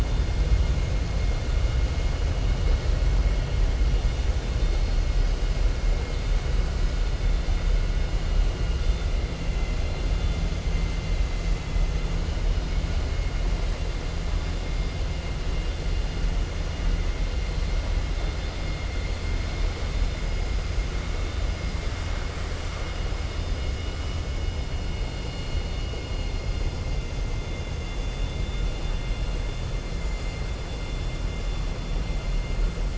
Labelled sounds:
9.5	10.4	vessel noise, 2.1 to 4.2 kHz

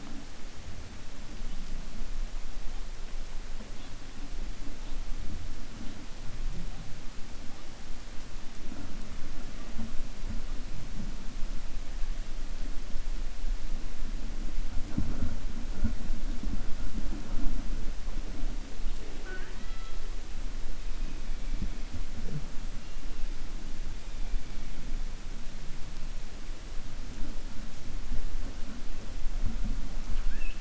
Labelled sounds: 30.0	30.5	killer whale, 1.3 to 3.2 kHz

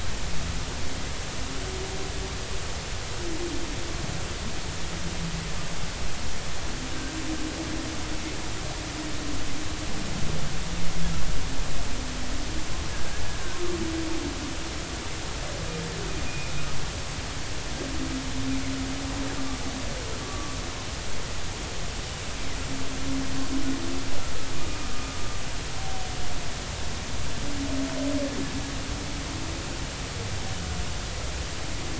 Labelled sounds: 16.3	16.5	humpback whale, 2.3 to 2.6 kHz
20.2	20.6	humpback whale, 1.1 to 1.2 kHz
24.9	25.2	humpback whale, 1.15 to 1.25 kHz

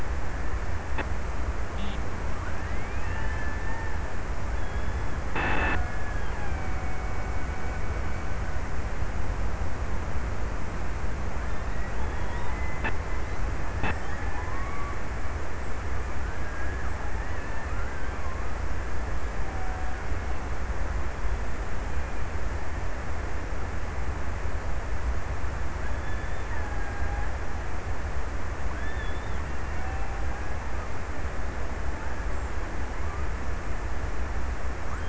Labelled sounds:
2.2	4.3	killer whale, Bigg's (transient), 0.60 to 2.1 kHz
5.4	9.1	killer whale, Bigg's (transient), 0.64 to 2.7 kHz
11.1	15.8	killer whale, Bigg's (transient), 0.52 to 2.9 kHz
19.1	20.9	killer whale, Bigg's (transient), 0.61 to 1.9 kHz
25.3	28.1	killer whale, Bigg's (transient), 0.46 to 2.0 kHz
28.9	31.1	killer whale, Bigg's (transient), 0.58 to 2.1 kHz

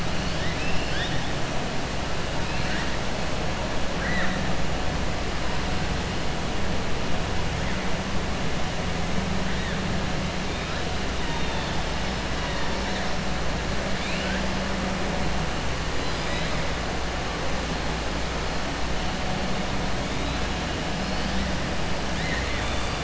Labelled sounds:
0.1	1.3	killer whale, 1.6 to 5.6 kHz
3.9	4.4	killer whale, 0.57 to 4.0 kHz
13.9	14.4	killer whale, 1.4 to 4.2 kHz
15.9	16.5	killer whale, 1.2 to 5.6 kHz
22.1	23.0	killer whale, 1.2 to 3.6 kHz

